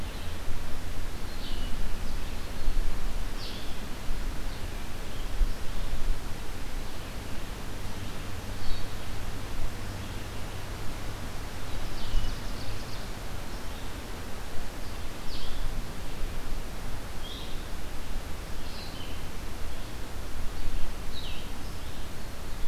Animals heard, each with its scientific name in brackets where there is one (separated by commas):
Blue-headed Vireo (Vireo solitarius), Red-eyed Vireo (Vireo olivaceus), Ovenbird (Seiurus aurocapilla)